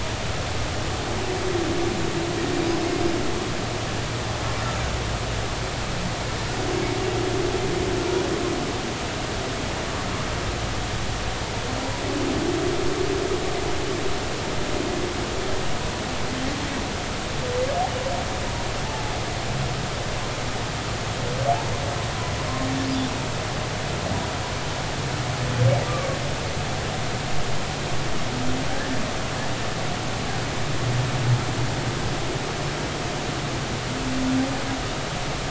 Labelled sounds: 18.8	19.1	humpback whale, 0.80 to 0.93 kHz
28.7	29.0	humpback whale, 1.6 to 1.9 kHz

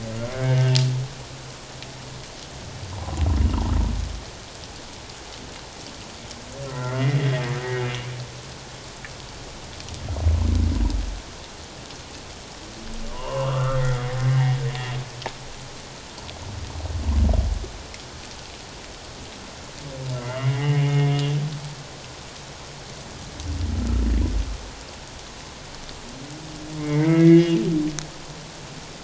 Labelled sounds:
0.4	0.7	humpback whale, 2.16 to 2.25 kHz
2.9	3.2	humpback whale, 0.84 to 1.1 kHz
6.6	7.3	humpback whale, 0.97 to 2.1 kHz
13.1	13.8	humpback whale, 0.88 to 2.9 kHz
20.2	21.2	humpback whale, 1.8 to 3.0 kHz
26.8	27.6	humpback whale, 1.6 to 2.9 kHz

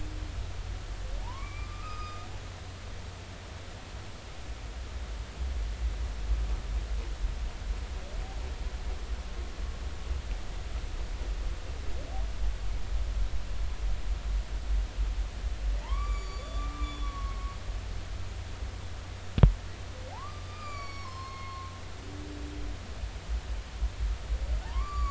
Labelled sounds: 1.2	2.3	humpback whale, 0.80 to 5.1 kHz
15.8	17.5	humpback whale, 0.83 to 7.0 kHz
20.1	21.7	humpback whale, 0.80 to 7.2 kHz
24.6	25.0	humpback whale, 0.80 to 7.1 kHz

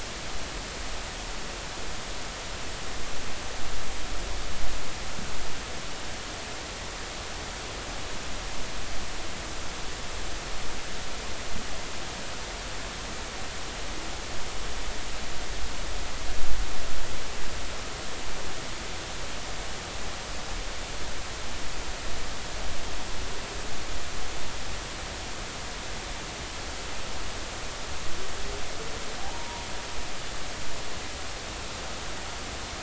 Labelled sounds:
29.2	29.7	humpback whale, 0.80 to 0.99 kHz

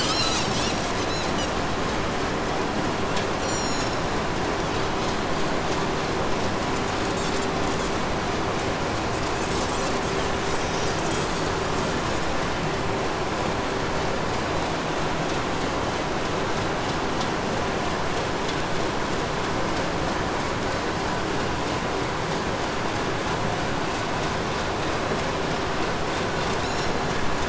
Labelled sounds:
3.1	4.2	Pacific white-sided dolphin, 1.6 to 8.0 kHz
6.7	8.0	Pacific white-sided dolphin, 2.2 to 8.0 kHz
8.9	12.3	Pacific white-sided dolphin, 1.5 to 8.0 kHz
26.2	27.0	Pacific white-sided dolphin, 2.1 to 8.0 kHz

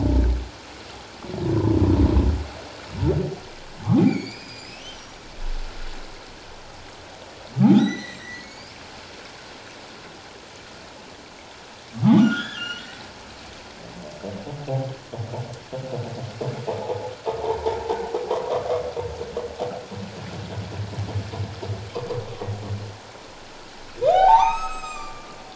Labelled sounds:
3.9	5.2	humpback whale, 0.78 to 6.1 kHz
7.6	8.7	humpback whale, 0.78 to 6.8 kHz
12.2	13.0	humpback whale, 1.2 to 5.9 kHz
17.4	17.8	humpback whale, 0.78 to 1.1 kHz
24.0	25.3	humpback whale, 0.78 to 7.8 kHz

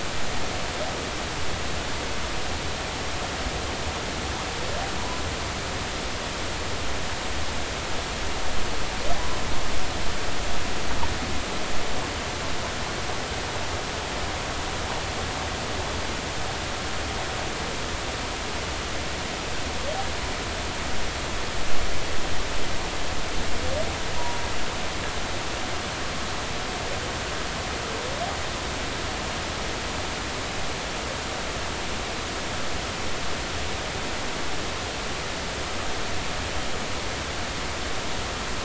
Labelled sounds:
24.2	24.4	humpback whale, 0.90 to 1.0 kHz

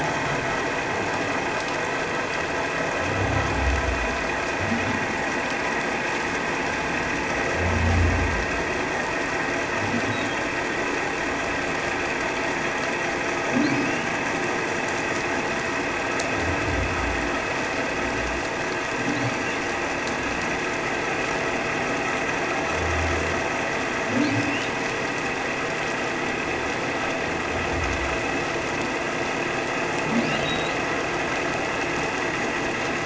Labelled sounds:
13.8	14.1	humpback whale, 2.7 to 3.0 kHz
30.4	30.7	humpback whale, 3.6 to 4.1 kHz

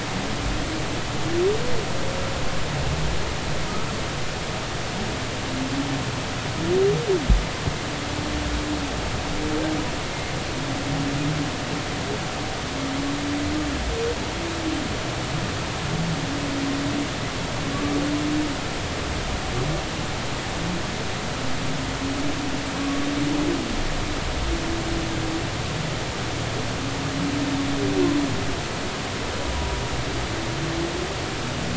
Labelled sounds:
22.8	23.0	humpback whale, 1.1 to 1.2 kHz

